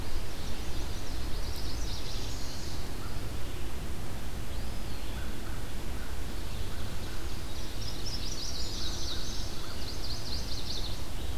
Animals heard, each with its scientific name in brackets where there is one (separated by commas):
Eastern Wood-Pewee (Contopus virens), Chestnut-sided Warbler (Setophaga pensylvanica), American Crow (Corvus brachyrhynchos), Ovenbird (Seiurus aurocapilla)